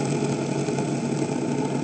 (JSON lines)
{"label": "ambient", "recorder": "HydroMoth"}